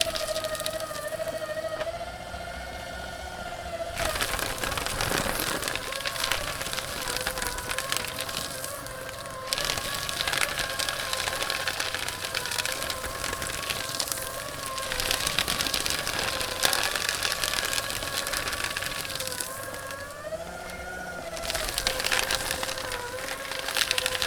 What is crunching?
paper